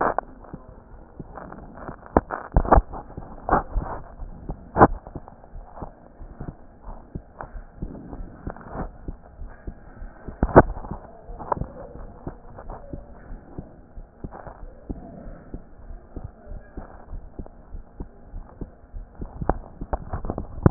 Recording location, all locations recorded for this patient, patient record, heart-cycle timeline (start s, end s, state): aortic valve (AV)
aortic valve (AV)+pulmonary valve (PV)+mitral valve (MV)
#Age: Child
#Sex: Female
#Height: 153.0 cm
#Weight: 37.6 kg
#Pregnancy status: False
#Murmur: Unknown
#Murmur locations: nan
#Most audible location: nan
#Systolic murmur timing: nan
#Systolic murmur shape: nan
#Systolic murmur grading: nan
#Systolic murmur pitch: nan
#Systolic murmur quality: nan
#Diastolic murmur timing: nan
#Diastolic murmur shape: nan
#Diastolic murmur grading: nan
#Diastolic murmur pitch: nan
#Diastolic murmur quality: nan
#Outcome: Normal
#Campaign: 2015 screening campaign
0.00	7.80	unannotated
7.80	7.89	S2
7.89	8.18	diastole
8.18	8.28	S1
8.28	8.44	systole
8.44	8.54	S2
8.54	8.76	diastole
8.76	8.90	S1
8.90	9.05	systole
9.05	9.18	S2
9.18	9.38	diastole
9.38	9.51	S1
9.51	9.65	systole
9.65	9.74	S2
9.74	10.00	diastole
10.00	10.09	S1
10.09	10.26	systole
10.26	10.33	S2
10.33	11.26	unannotated
11.26	11.40	S1
11.40	11.56	systole
11.56	11.70	S2
11.70	11.97	diastole
11.97	12.08	S1
12.08	12.24	systole
12.24	12.32	S2
12.32	12.65	diastole
12.65	12.76	S1
12.76	12.91	systole
12.91	13.01	S2
13.01	13.28	diastole
13.28	13.40	S1
13.40	13.55	systole
13.55	13.66	S2
13.66	13.95	diastole
13.95	14.06	S1
14.06	14.21	systole
14.21	14.30	S2
14.30	20.70	unannotated